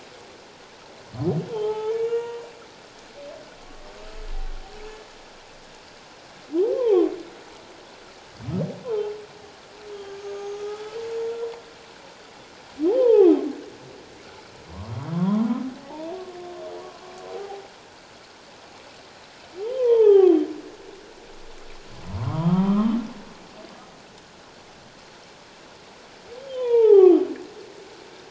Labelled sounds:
1.5	2.5	humpback whale, 0.81 to 2.9 kHz
6.7	7.1	humpback whale, 0.78 to 3.5 kHz
8.8	9.1	humpback whale, 0.78 to 1.1 kHz
9.9	11.3	humpback whale, 1.2 to 6.7 kHz
12.9	13.3	humpback whale, 0.78 to 1.1 kHz
14.7	15.5	humpback whale, 0.91 to 3.5 kHz
15.8	16.1	humpback whale, 0.78 to 0.97 kHz
17.3	17.6	humpback whale, 0.78 to 0.88 kHz
19.6	20.4	humpback whale, 0.78 to 3.5 kHz
22.2	22.9	humpback whale, 0.91 to 1.4 kHz
26.4	27.2	humpback whale, 0.78 to 3.7 kHz

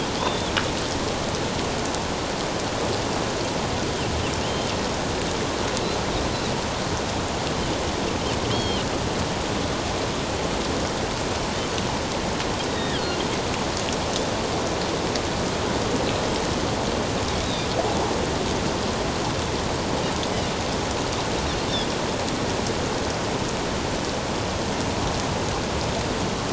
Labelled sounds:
4.4	4.7	Pacific white-sided dolphin, 2.8 to 3.2 kHz
8.5	8.9	Pacific white-sided dolphin, 2.8 to 4.4 kHz
12.7	13.2	Pacific white-sided dolphin, 1.3 to 3.9 kHz
17.4	17.7	Pacific white-sided dolphin, 3.5 to 3.9 kHz

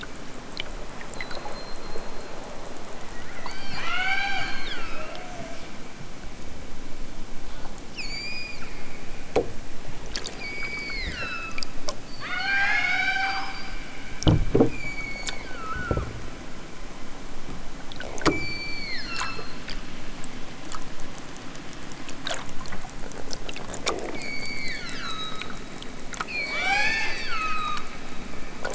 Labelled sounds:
3.3	5.2	killer whale, southern Alaska resident, 0.37 to 8.0 kHz
7.9	9.0	killer whale, southern Alaska resident, 0.78 to 8.0 kHz
10.3	11.7	killer whale, southern Alaska resident, 0.96 to 8.0 kHz
12.1	13.8	killer whale, southern Alaska resident, 0.41 to 8.0 kHz
14.6	16.1	killer whale, southern Alaska resident, 0.96 to 8.0 kHz
18.1	19.6	killer whale, southern Alaska resident, 0.96 to 8.0 kHz
24.2	25.7	killer whale, southern Alaska resident, 0.83 to 8.0 kHz
26.2	28.0	killer whale, southern Alaska resident, 0.41 to 8.0 kHz

